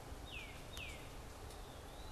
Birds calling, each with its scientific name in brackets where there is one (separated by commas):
Eastern Wood-Pewee (Contopus virens), Tufted Titmouse (Baeolophus bicolor)